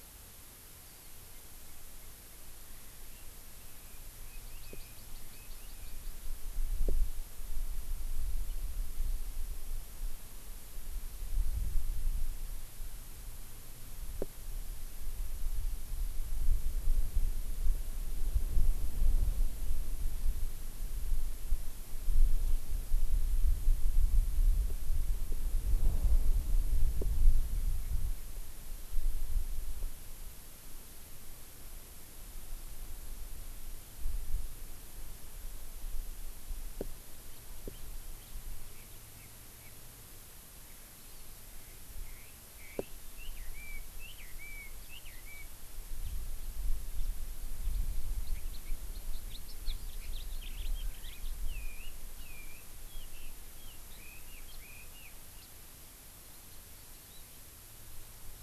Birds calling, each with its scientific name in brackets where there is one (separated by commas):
House Finch (Haemorhous mexicanus), Hawaii Amakihi (Chlorodrepanis virens), Chinese Hwamei (Garrulax canorus)